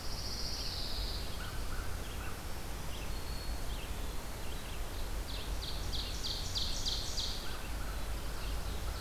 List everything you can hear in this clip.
Pine Warbler, Red-eyed Vireo, American Crow, Black-throated Green Warbler, Ovenbird, Black-throated Blue Warbler